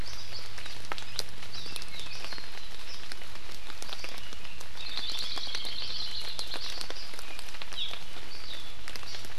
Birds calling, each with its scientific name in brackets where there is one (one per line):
Hawaii Creeper (Loxops mana)
Hawaii Amakihi (Chlorodrepanis virens)